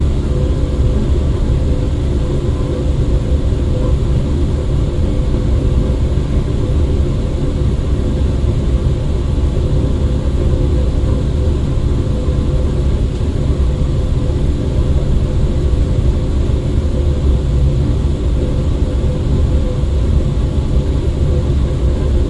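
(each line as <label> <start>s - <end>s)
A dull washing machine sound is coming from another room. 0.0s - 22.3s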